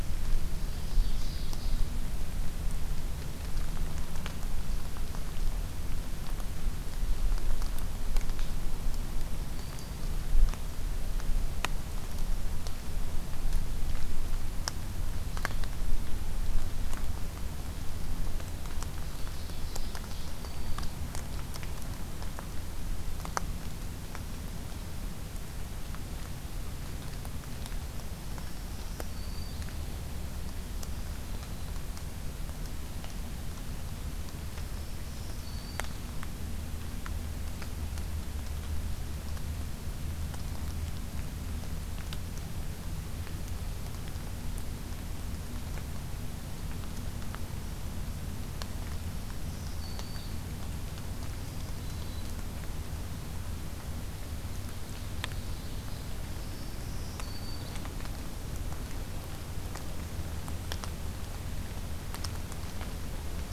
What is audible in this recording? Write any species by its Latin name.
Seiurus aurocapilla, Setophaga virens